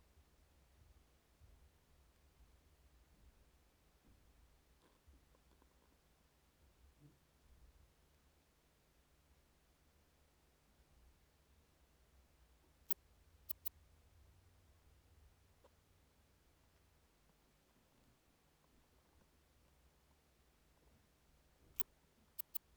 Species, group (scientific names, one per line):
Poecilimon antalyaensis
Orthoptera